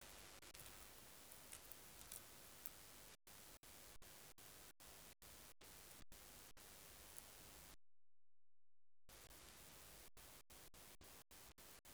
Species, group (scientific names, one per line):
Stauroderus scalaris
Orthoptera